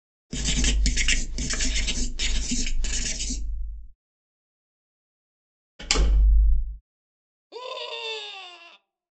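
At 0.29 seconds, writing can be heard. Then, at 5.79 seconds, slamming is heard. Afterwards, at 7.49 seconds, someone screams.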